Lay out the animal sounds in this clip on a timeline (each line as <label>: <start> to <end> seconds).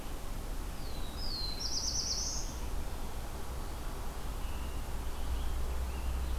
Black-throated Blue Warbler (Setophaga caerulescens): 0.5 to 2.6 seconds
Hermit Thrush (Catharus guttatus): 4.3 to 6.4 seconds